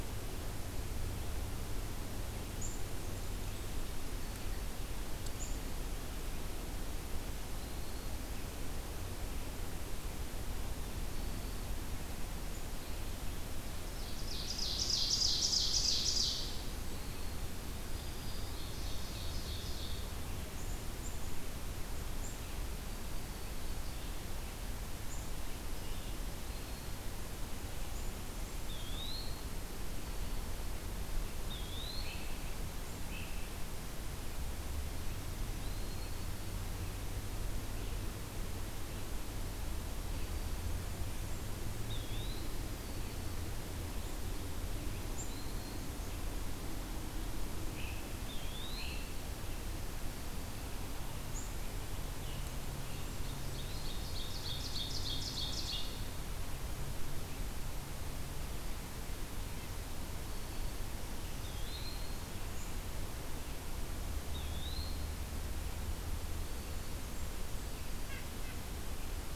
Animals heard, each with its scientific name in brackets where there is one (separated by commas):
Black-throated Green Warbler (Setophaga virens), Blackburnian Warbler (Setophaga fusca), Red-breasted Nuthatch (Sitta canadensis), Great Crested Flycatcher (Myiarchus crinitus), Black-capped Chickadee (Poecile atricapillus), Ovenbird (Seiurus aurocapilla), Eastern Wood-Pewee (Contopus virens)